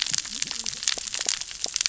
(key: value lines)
label: biophony, cascading saw
recorder: SoundTrap 600 or HydroMoth